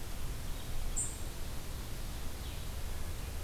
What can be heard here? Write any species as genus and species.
Vireo solitarius